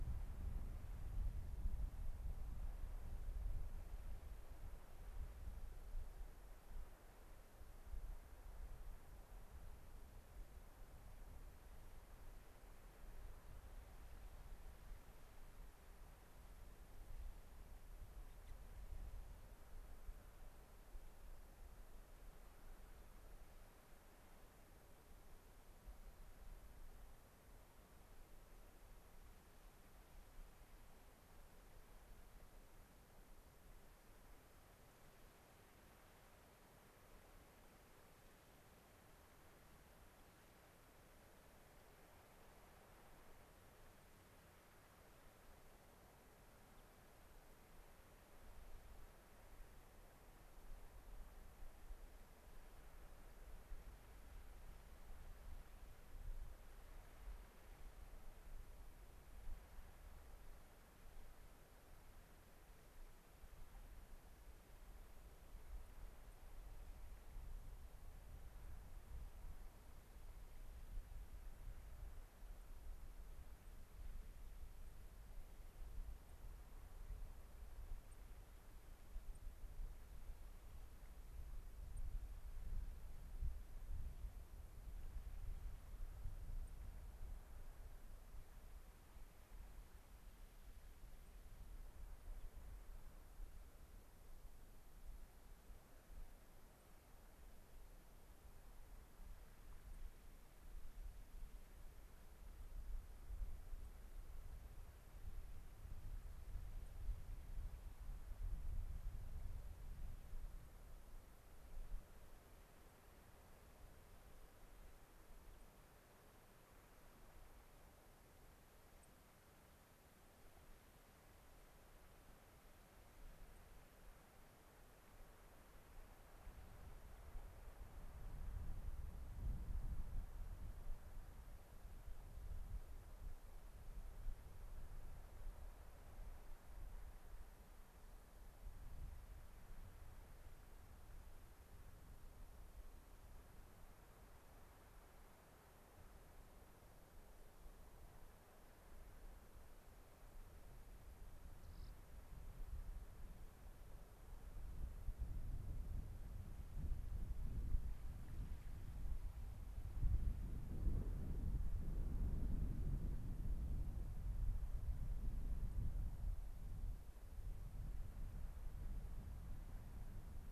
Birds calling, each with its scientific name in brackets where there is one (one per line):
White-crowned Sparrow (Zonotrichia leucophrys)
Rock Wren (Salpinctes obsoletus)
Gray-crowned Rosy-Finch (Leucosticte tephrocotis)